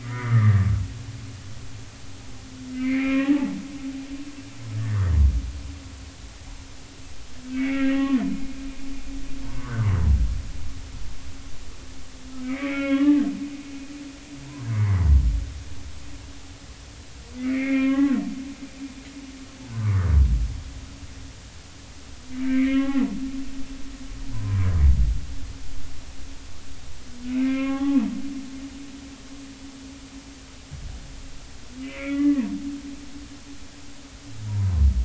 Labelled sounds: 0.0	0.7	humpback whale, 1.1 to 2.1 kHz
2.7	3.3	humpback whale, 2.0 to 2.5 kHz
4.7	5.0	humpback whale, 1.6 to 1.9 kHz
7.5	8.2	humpback whale, 1.0 to 2.5 kHz
9.4	9.9	humpback whale, 0.86 to 1.6 kHz
12.4	13.2	humpback whale, 1.0 to 3.2 kHz
17.4	18.2	humpback whale, 1.0 to 3.0 kHz
19.8	20.1	humpback whale, 0.90 to 1.3 kHz
22.4	23.0	humpback whale, 0.80 to 3.4 kHz
24.3	24.7	humpback whale, 0.96 to 1.1 kHz
27.3	28.0	humpback whale, 0.80 to 3.0 kHz
31.8	32.5	humpback whale, 0.90 to 2.6 kHz
34.5	34.7	humpback whale, 0.90 to 1.1 kHz

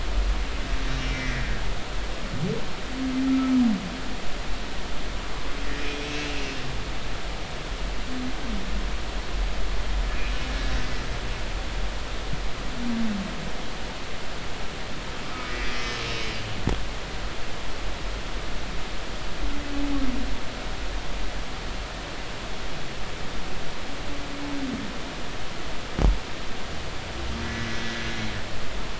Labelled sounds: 0.9	2.3	humpback whale, 1.5 to 5.6 kHz
3.3	3.5	humpback whale, 1.2 to 1.4 kHz
5.8	6.4	humpback whale, 2.4 to 2.8 kHz
15.3	16.0	humpback whale, 1.2 to 2.1 kHz
27.4	27.7	humpback whale, 1.9 to 2.0 kHz

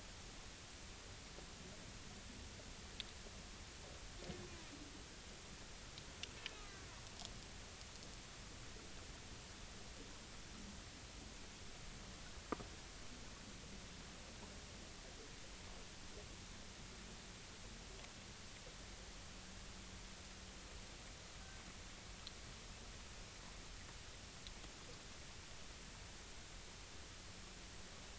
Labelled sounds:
6.4	6.9	Risso's dolphin, 1.1 to 1.8 kHz

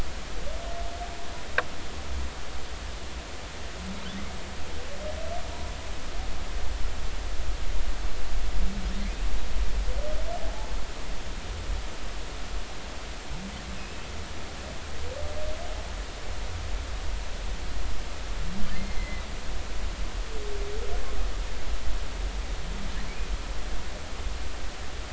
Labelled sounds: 9.0	9.3	humpback whale, 2.0 to 2.6 kHz
13.8	14.1	humpback whale, 2.5 to 2.7 kHz
18.7	19.3	humpback whale, 2.0 to 4.3 kHz

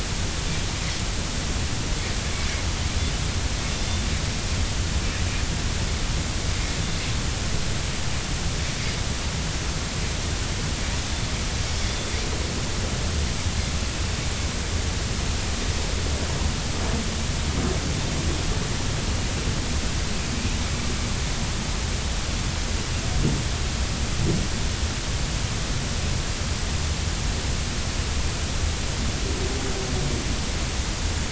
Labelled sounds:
11.9	12.1	Pacific white-sided dolphin, 3.4 to 3.6 kHz

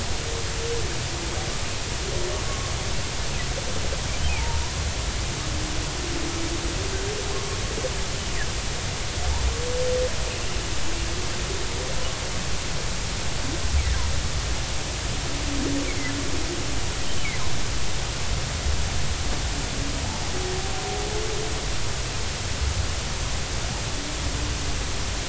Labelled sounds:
4.3	4.6	humpback whale, 0.80 to 0.99 kHz

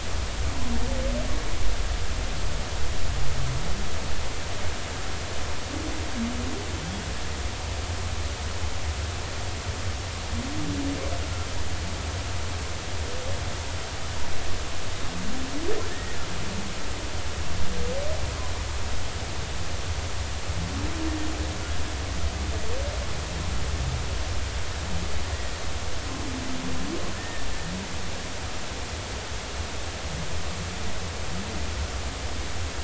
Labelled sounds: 15.9	16.2	humpback whale, 1.7 to 1.9 kHz
27.1	27.5	humpback whale, 1.7 to 1.9 kHz

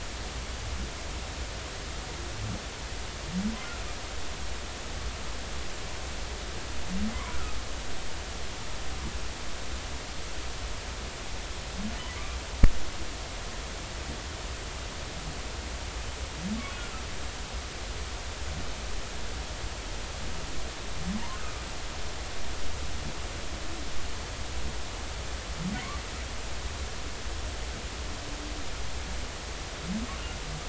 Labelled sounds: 7.1	7.6	humpback whale, 0.93 to 1.5 kHz

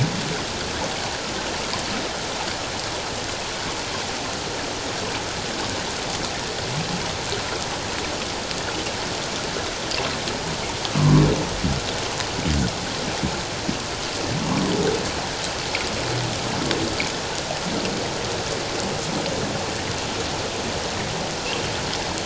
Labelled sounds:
11.0	11.2	humpback whale, 0.97 to 1.2 kHz

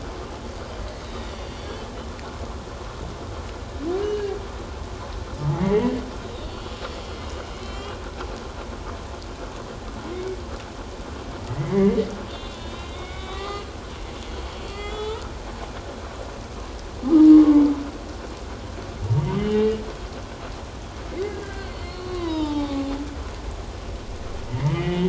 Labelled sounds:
1.0	1.8	humpback whale, 3.7 to 5.8 kHz
4.0	4.3	humpback whale, 1.6 to 3.0 kHz
5.4	6.0	humpback whale, 0.81 to 3.1 kHz
6.5	8.0	humpback whale, 2.0 to 3.4 kHz
10.1	10.4	humpback whale, 2.1 to 2.3 kHz
11.5	13.7	humpback whale, 1.1 to 4.5 kHz
14.6	15.3	humpback whale, 1.2 to 4.6 kHz
17.3	17.6	humpback whale, 1.0 to 1.2 kHz
19.2	19.8	humpback whale, 1.9 to 3.2 kHz
21.1	22.9	humpback whale, 0.78 to 4.4 kHz
24.5	25.0	humpback whale, 1.9 to 3.1 kHz

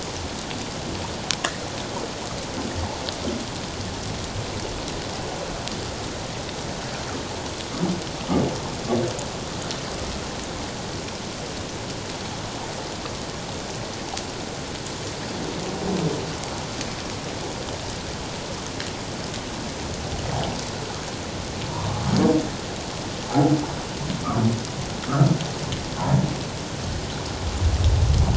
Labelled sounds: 23.3	23.5	humpback whale, 0.78 to 0.91 kHz

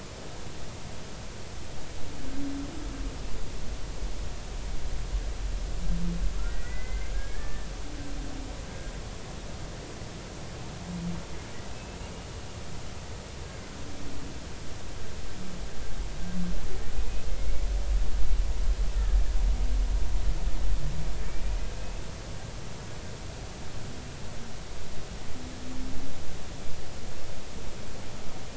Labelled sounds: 6.5	7.7	humpback whale, 1.6 to 2.1 kHz
11.7	12.0	humpback whale, 2.6 to 2.7 kHz
17.4	17.6	humpback whale, 2.1 to 2.3 kHz
21.7	22.0	humpback whale, 2.5 to 2.6 kHz

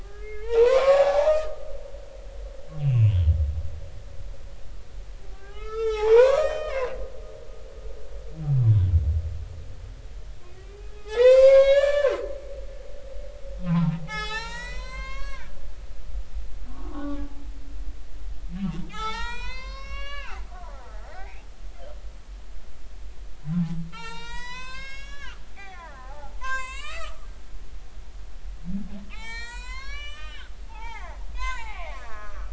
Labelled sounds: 0.0	1.6	humpback whale, 0.80 to 2.8 kHz
2.8	3.2	humpback whale, 2.3 to 2.9 kHz
5.3	6.9	humpback whale, 0.80 to 5.9 kHz
10.6	12.2	humpback whale, 0.80 to 7.6 kHz
13.7	15.5	humpback whale, 0.80 to 8.0 kHz
16.7	17.2	humpback whale, 1.0 to 1.5 kHz
18.5	20.4	humpback whale, 0.80 to 8.0 kHz
21.1	21.5	humpback whale, 1.8 to 2.8 kHz
23.5	27.3	humpback whale, 0.80 to 8.0 kHz
29.0	32.5	humpback whale, 0.80 to 8.0 kHz

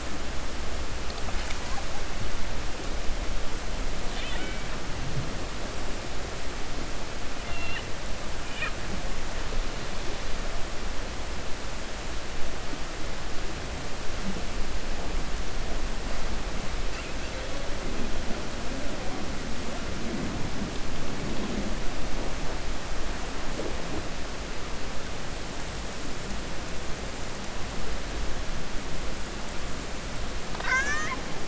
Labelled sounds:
4.0	4.7	killer whale, 0.93 to 4.4 kHz

